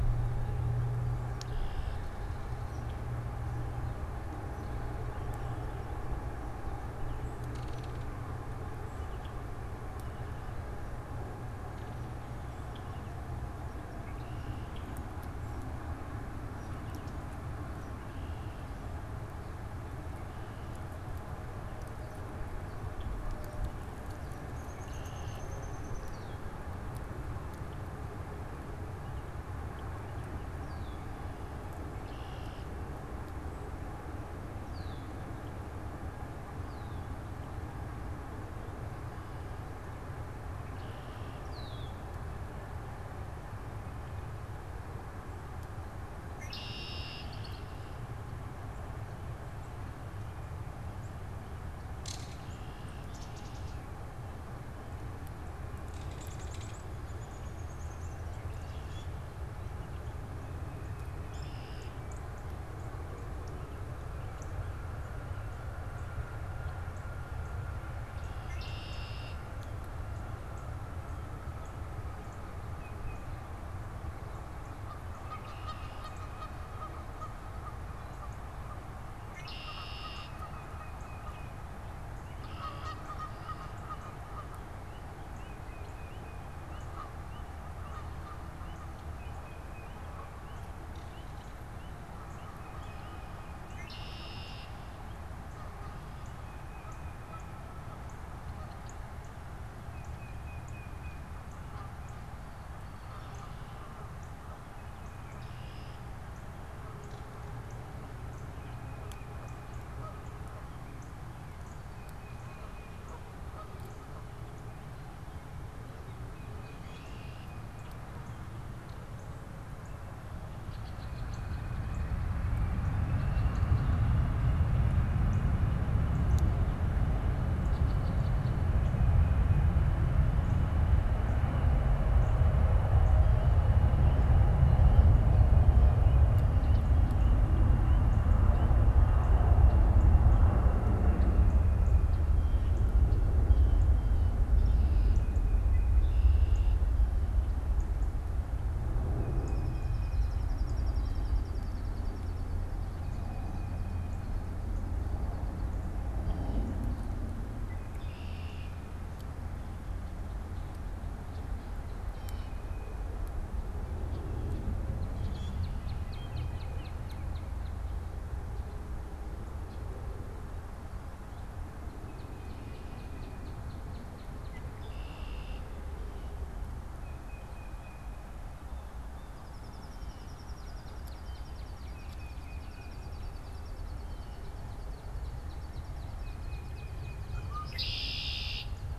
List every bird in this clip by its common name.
Red-winged Blackbird, Belted Kingfisher, Yellow-rumped Warbler, Downy Woodpecker, Black-capped Chickadee, Common Grackle, Northern Cardinal, Tufted Titmouse, Canada Goose, American Robin, unidentified bird, Blue Jay, Baltimore Oriole